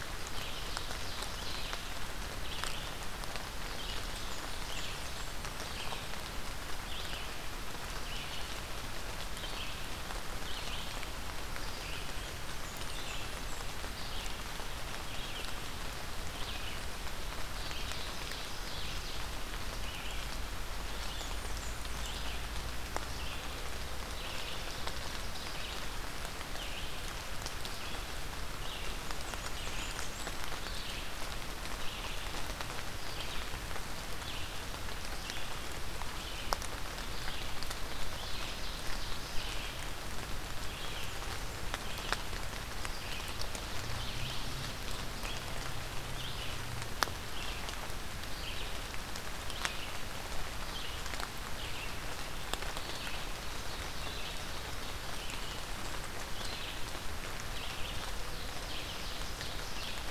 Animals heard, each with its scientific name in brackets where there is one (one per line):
Blackburnian Warbler (Setophaga fusca)
Red-eyed Vireo (Vireo olivaceus)
Ovenbird (Seiurus aurocapilla)